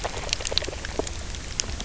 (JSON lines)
{"label": "biophony, grazing", "recorder": "SoundTrap 300"}